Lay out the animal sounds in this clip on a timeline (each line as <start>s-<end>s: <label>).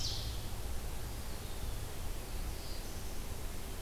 0.0s-3.8s: Red-eyed Vireo (Vireo olivaceus)
0.9s-2.0s: Eastern Wood-Pewee (Contopus virens)
1.9s-3.5s: Black-throated Blue Warbler (Setophaga caerulescens)